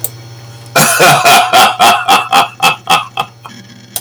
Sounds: Laughter